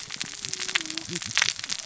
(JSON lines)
{"label": "biophony, cascading saw", "recorder": "SoundTrap 600 or HydroMoth"}